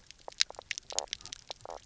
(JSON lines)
{"label": "biophony, knock croak", "recorder": "SoundTrap 300"}